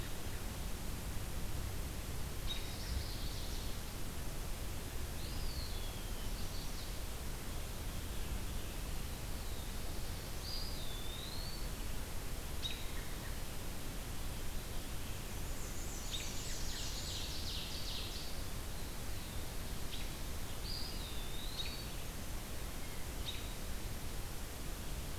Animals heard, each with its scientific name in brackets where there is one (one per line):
Black-throated Blue Warbler (Setophaga caerulescens)
Ovenbird (Seiurus aurocapilla)
Black-and-white Warbler (Mniotilta varia)
Chestnut-sided Warbler (Setophaga pensylvanica)
Eastern Wood-Pewee (Contopus virens)
American Robin (Turdus migratorius)